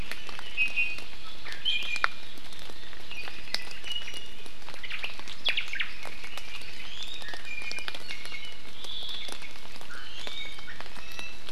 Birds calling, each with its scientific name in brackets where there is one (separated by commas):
Omao (Myadestes obscurus), Iiwi (Drepanis coccinea)